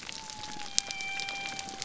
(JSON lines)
{"label": "biophony", "recorder": "SoundTrap 300"}